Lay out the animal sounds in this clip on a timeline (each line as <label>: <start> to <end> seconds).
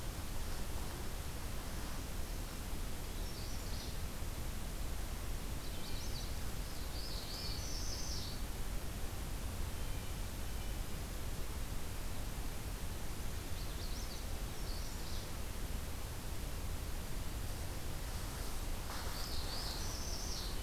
Magnolia Warbler (Setophaga magnolia): 3.0 to 4.0 seconds
Magnolia Warbler (Setophaga magnolia): 5.4 to 6.4 seconds
Northern Parula (Setophaga americana): 6.7 to 8.6 seconds
Blue Jay (Cyanocitta cristata): 7.1 to 7.6 seconds
Blue Jay (Cyanocitta cristata): 9.7 to 11.0 seconds
Magnolia Warbler (Setophaga magnolia): 13.4 to 14.2 seconds
Magnolia Warbler (Setophaga magnolia): 14.5 to 15.4 seconds
Northern Parula (Setophaga americana): 18.8 to 20.6 seconds